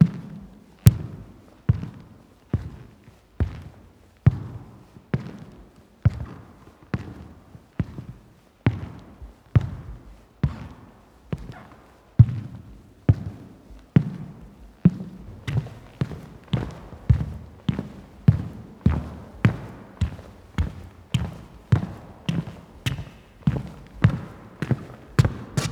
Are the footsteps getting closer?
yes